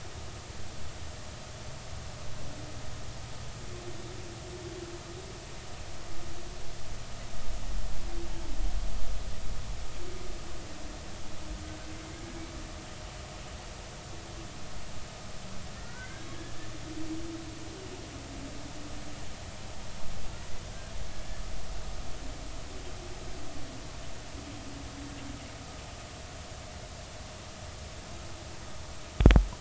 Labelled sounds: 15.7	16.3	humpback whale, 1.3 to 1.7 kHz

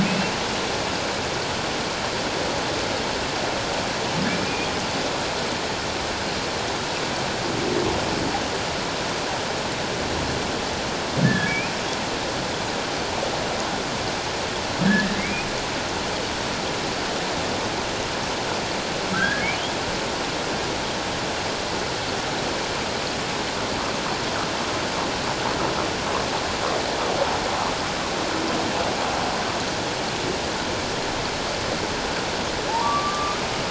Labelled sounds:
0.0	0.3	humpback whale, 2.4 to 2.8 kHz
11.2	11.7	humpback whale, 1.6 to 2.6 kHz
14.8	15.5	humpback whale, 1.5 to 2.6 kHz
19.1	19.4	humpback whale, 1.5 to 1.8 kHz
32.7	33.4	humpback whale, 0.81 to 1.2 kHz

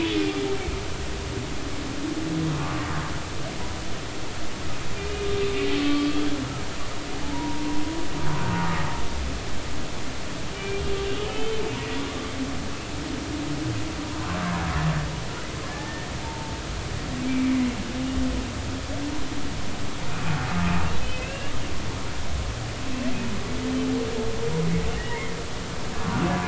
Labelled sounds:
2.6	2.9	humpback whale, 1.0 to 1.2 kHz
5.8	6.3	humpback whale, 1.1 to 3.4 kHz
7.2	7.8	humpback whale, 0.83 to 1.1 kHz
10.5	11.6	humpback whale, 2.3 to 3.2 kHz
15.6	17.6	humpback whale, 0.83 to 2.4 kHz
20.5	21.5	humpback whale, 1.2 to 2.9 kHz
24.9	25.4	humpback whale, 1.8 to 2.2 kHz

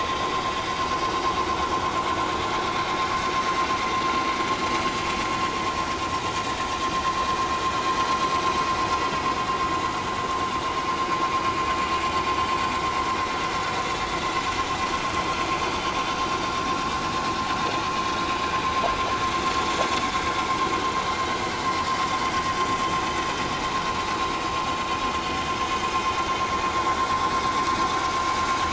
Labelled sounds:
15.5	15.8	vessel noise, 4.6 to 4.8 kHz
24.2	24.9	vessel noise, 2.8 to 4.5 kHz

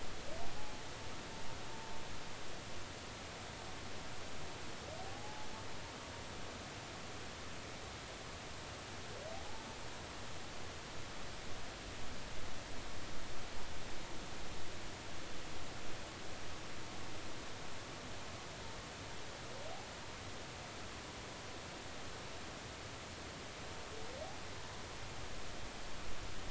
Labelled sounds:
0.6	0.8	humpback whale, 0.80 to 0.90 kHz
5.0	5.5	humpback whale, 0.80 to 0.90 kHz

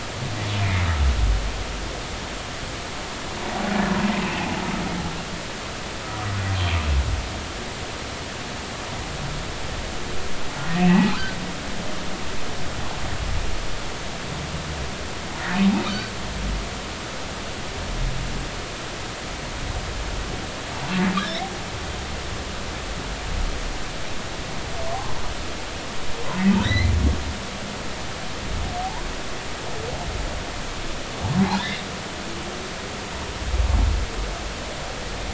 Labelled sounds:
0.6	0.9	humpback whale, 2.0 to 2.5 kHz
4.2	4.5	humpback whale, 2.3 to 2.8 kHz
10.8	11.2	humpback whale, 0.80 to 2.8 kHz
26.6	26.9	humpback whale, 1.5 to 4.2 kHz
28.8	29.0	humpback whale, 0.80 to 1.1 kHz
31.6	31.8	humpback whale, 3.4 to 3.9 kHz

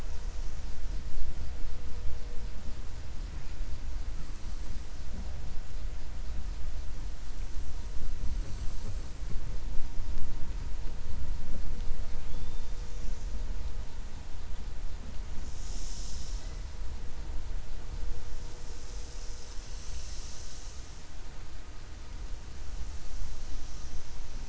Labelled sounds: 12.2	12.7	killer whale, 2.5 to 4.3 kHz

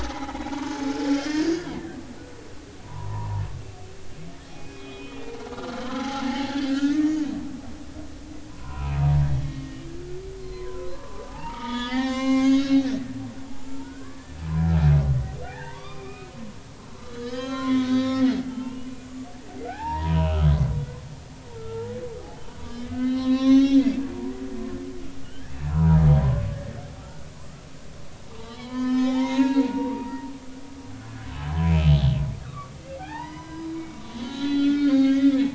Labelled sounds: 0.0	1.5	humpback whale, 0.80 to 5.4 kHz
2.8	3.5	humpback whale, 0.86 to 1.2 kHz
4.5	7.2	humpback whale, 0.80 to 3.5 kHz
8.5	9.7	humpback whale, 0.93 to 2.6 kHz
10.4	12.9	humpback whale, 0.80 to 7.5 kHz
13.5	14.8	humpback whale, 0.80 to 7.3 kHz
15.4	16.3	humpback whale, 0.80 to 4.9 kHz
16.9	20.4	humpback whale, 0.80 to 6.7 kHz
21.7	22.0	humpback whale, 0.80 to 0.96 kHz
22.5	23.8	humpback whale, 0.99 to 6.3 kHz
25.2	26.5	humpback whale, 0.80 to 1.8 kHz
27.0	27.2	humpback whale, 1.1 to 1.5 kHz
28.3	30.1	humpback whale, 0.80 to 7.1 kHz
31.0	31.9	humpback whale, 1.4 to 2.7 kHz
32.4	35.4	humpback whale, 0.80 to 5.0 kHz

